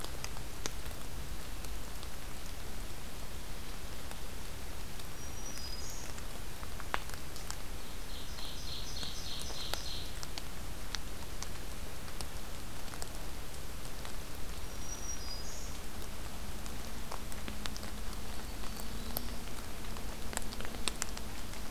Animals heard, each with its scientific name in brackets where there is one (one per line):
Ovenbird (Seiurus aurocapilla)
Black-throated Green Warbler (Setophaga virens)